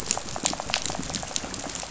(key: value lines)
label: biophony, rattle
recorder: SoundTrap 500